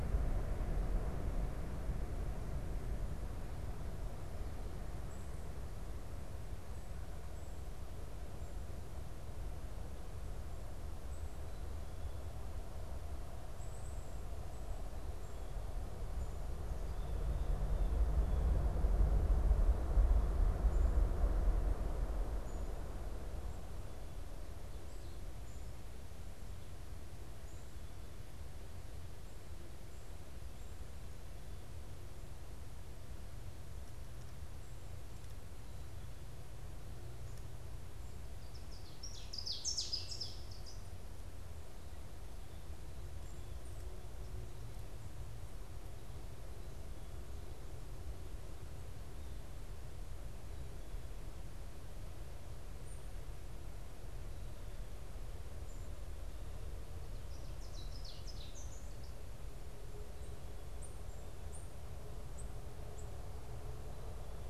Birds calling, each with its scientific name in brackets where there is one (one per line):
Black-capped Chickadee (Poecile atricapillus)
Ovenbird (Seiurus aurocapilla)